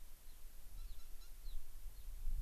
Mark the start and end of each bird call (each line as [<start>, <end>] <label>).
[0.20, 0.40] Gray-crowned Rosy-Finch (Leucosticte tephrocotis)
[0.80, 1.00] Gray-crowned Rosy-Finch (Leucosticte tephrocotis)
[1.40, 1.60] Gray-crowned Rosy-Finch (Leucosticte tephrocotis)
[1.90, 2.10] Gray-crowned Rosy-Finch (Leucosticte tephrocotis)